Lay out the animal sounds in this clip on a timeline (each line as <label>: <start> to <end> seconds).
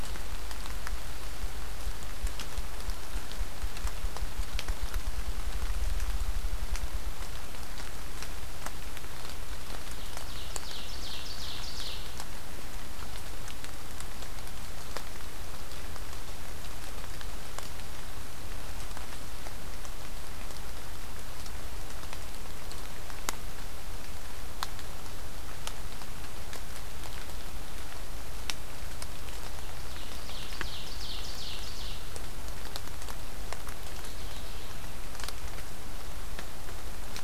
Ovenbird (Seiurus aurocapilla): 9.7 to 12.1 seconds
Ovenbird (Seiurus aurocapilla): 29.5 to 32.3 seconds
Mourning Warbler (Geothlypis philadelphia): 33.8 to 34.8 seconds